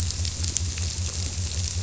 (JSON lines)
{"label": "biophony", "recorder": "SoundTrap 300"}